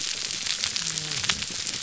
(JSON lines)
{"label": "biophony, whup", "recorder": "SoundTrap 300"}